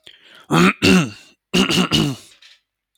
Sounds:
Throat clearing